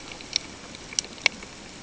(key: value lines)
label: ambient
recorder: HydroMoth